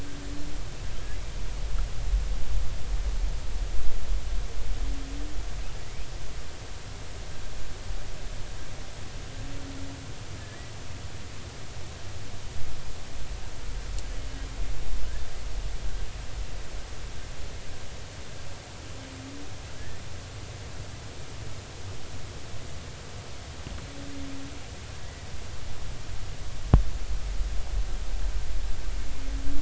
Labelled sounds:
10.4	10.7	humpback whale, 1.7 to 2.0 kHz
19.7	20.0	humpback whale, 1.5 to 1.9 kHz

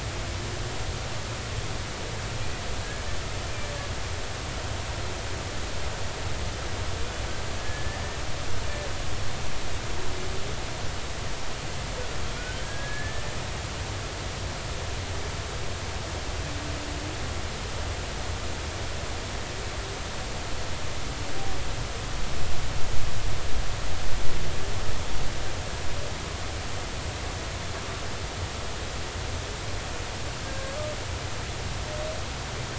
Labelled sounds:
7.6	8.0	humpback whale, 1.7 to 2.0 kHz
12.4	13.3	humpback whale, 1.4 to 1.8 kHz
30.4	30.8	humpback whale, 1.6 to 1.7 kHz

